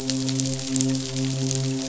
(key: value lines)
label: biophony, midshipman
recorder: SoundTrap 500